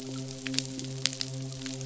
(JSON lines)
{"label": "biophony, midshipman", "recorder": "SoundTrap 500"}